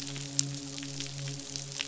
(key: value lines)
label: biophony, midshipman
recorder: SoundTrap 500